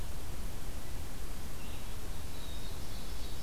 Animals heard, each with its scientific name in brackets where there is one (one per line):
Ovenbird (Seiurus aurocapilla)
Black-capped Chickadee (Poecile atricapillus)